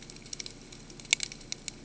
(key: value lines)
label: ambient
recorder: HydroMoth